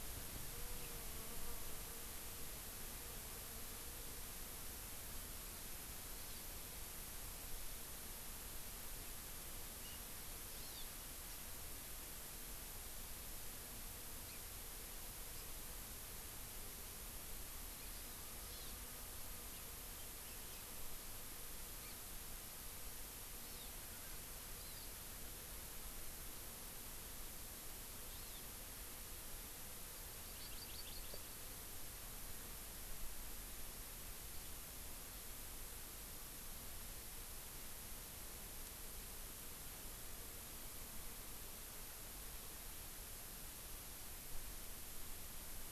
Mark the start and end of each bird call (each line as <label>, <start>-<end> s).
Hawaii Amakihi (Chlorodrepanis virens), 6.2-6.4 s
Hawaii Amakihi (Chlorodrepanis virens), 10.6-10.8 s
House Finch (Haemorhous mexicanus), 14.3-14.4 s
Hawaii Amakihi (Chlorodrepanis virens), 18.4-18.7 s
Hawaii Amakihi (Chlorodrepanis virens), 21.8-22.0 s
Hawaii Amakihi (Chlorodrepanis virens), 23.4-23.7 s
Hawaii Amakihi (Chlorodrepanis virens), 24.5-24.9 s
Hawaii Amakihi (Chlorodrepanis virens), 28.1-28.4 s
Hawaii Amakihi (Chlorodrepanis virens), 30.2-31.2 s